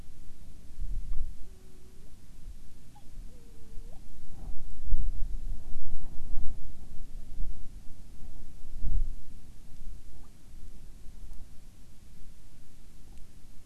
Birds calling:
Hawaiian Petrel (Pterodroma sandwichensis)

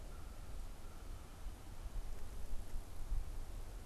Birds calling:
American Crow (Corvus brachyrhynchos)

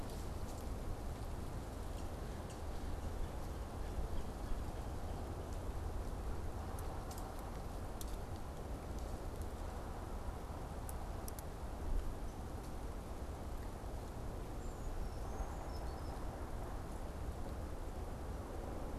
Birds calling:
Brown Creeper (Certhia americana)

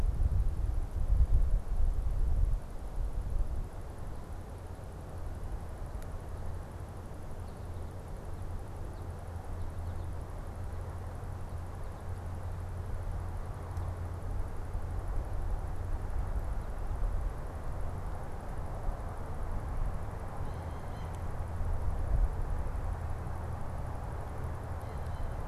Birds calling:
Blue Jay (Cyanocitta cristata)

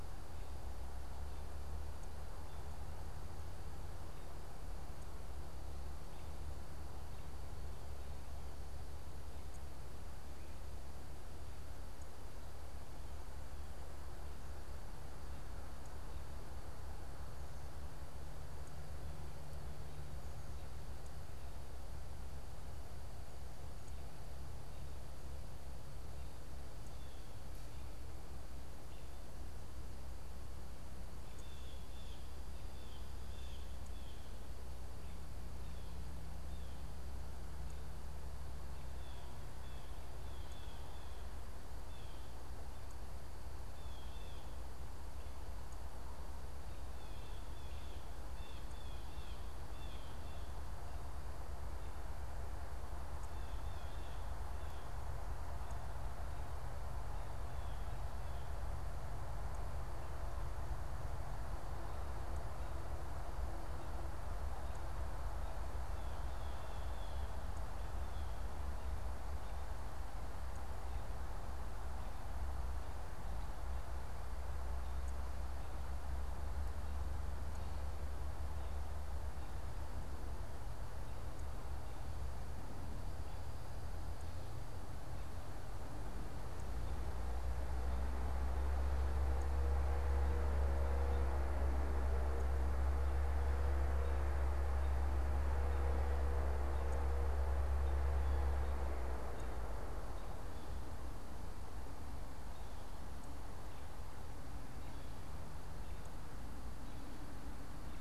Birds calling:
Blue Jay (Cyanocitta cristata)

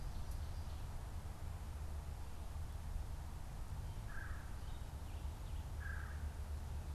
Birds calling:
Red-bellied Woodpecker (Melanerpes carolinus)

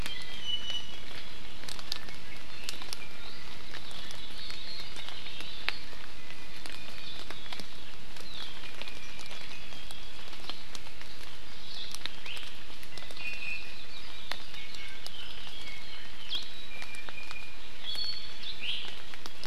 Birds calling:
Hawaii Akepa (Loxops coccineus)
Iiwi (Drepanis coccinea)

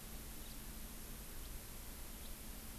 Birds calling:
House Finch (Haemorhous mexicanus)

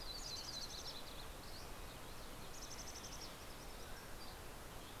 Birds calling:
Dusky Flycatcher (Empidonax oberholseri)
Red-breasted Nuthatch (Sitta canadensis)
Green-tailed Towhee (Pipilo chlorurus)
Yellow-rumped Warbler (Setophaga coronata)
Mountain Chickadee (Poecile gambeli)
Mountain Quail (Oreortyx pictus)

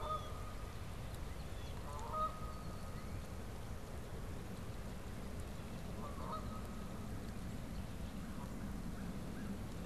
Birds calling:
American Crow (Corvus brachyrhynchos)
Red-winged Blackbird (Agelaius phoeniceus)
Blue Jay (Cyanocitta cristata)
Canada Goose (Branta canadensis)
Northern Cardinal (Cardinalis cardinalis)

